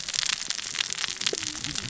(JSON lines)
{"label": "biophony, cascading saw", "recorder": "SoundTrap 600 or HydroMoth"}